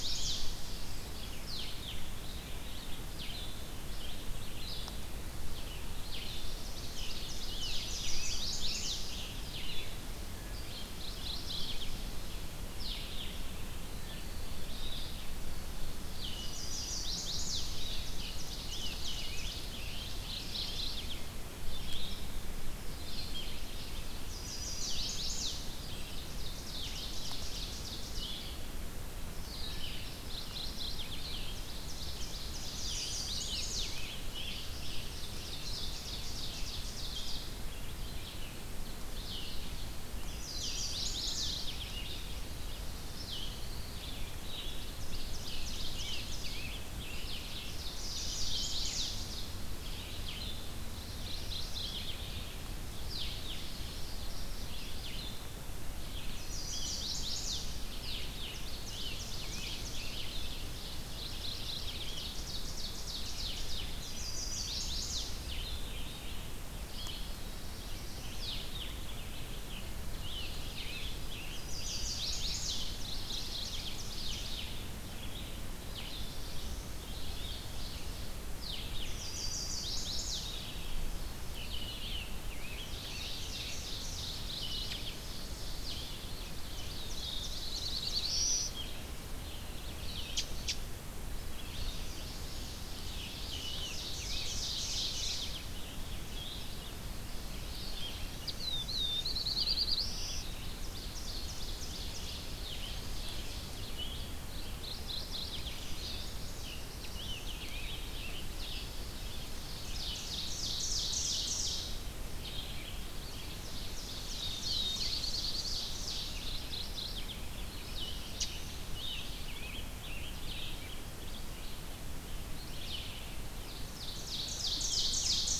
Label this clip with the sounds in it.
Chestnut-sided Warbler, Red-eyed Vireo, Ovenbird, Scarlet Tanager, Mourning Warbler, Black-throated Blue Warbler, unidentified call